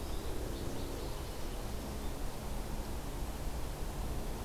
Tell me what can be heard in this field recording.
American Goldfinch